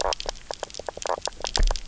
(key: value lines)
label: biophony, knock croak
recorder: SoundTrap 300